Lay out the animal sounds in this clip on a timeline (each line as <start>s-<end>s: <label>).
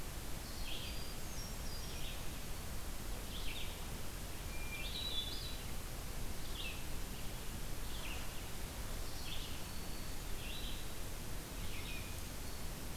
0.0s-13.0s: Red-eyed Vireo (Vireo olivaceus)
0.7s-2.3s: Hermit Thrush (Catharus guttatus)
4.3s-5.9s: Hermit Thrush (Catharus guttatus)
9.3s-10.5s: Black-throated Green Warbler (Setophaga virens)